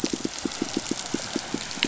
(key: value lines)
label: biophony, pulse
recorder: SoundTrap 500